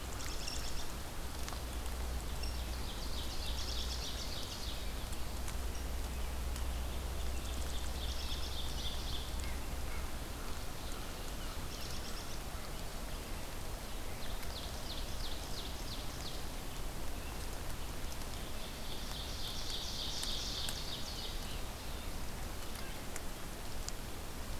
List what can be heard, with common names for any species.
American Robin, Ovenbird, Red-breasted Nuthatch